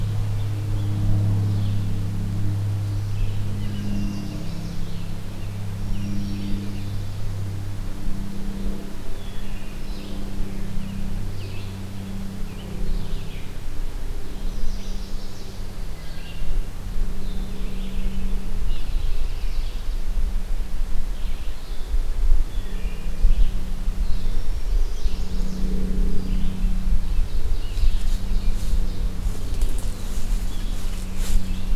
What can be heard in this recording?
Red-eyed Vireo, Broad-winged Hawk, Chestnut-sided Warbler, Black-throated Green Warbler, Wood Thrush